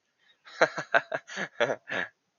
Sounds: Laughter